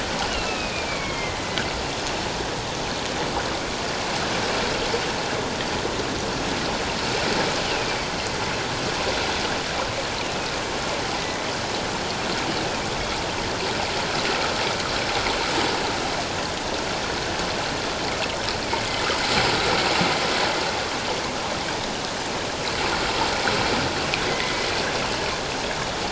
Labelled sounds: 0.3	1.6	killer whale, northern resident, A clan, AA subclan, 1.9 to 3.9 kHz
7.6	8.1	killer whale, northern resident, A clan, AA subclan, 2.2 to 3.1 kHz
24.3	24.6	killer whale, northern resident, A clan, AA subclan, 1.9 to 2.2 kHz

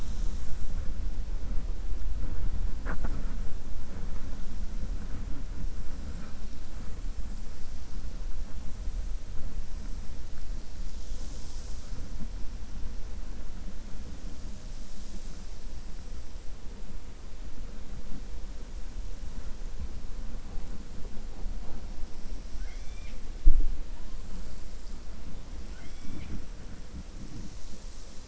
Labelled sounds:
22.5	23.2	killer whale, 1.5 to 6.4 kHz

